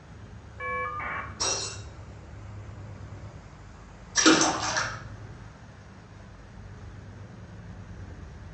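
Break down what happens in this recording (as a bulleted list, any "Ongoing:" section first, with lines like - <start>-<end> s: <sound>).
- 0.59-1.22 s: the sound of a telephone
- 1.39-1.75 s: glass shatters
- 4.14-4.82 s: splashing is heard
- a steady noise runs about 20 dB below the sounds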